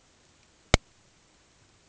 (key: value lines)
label: ambient
recorder: HydroMoth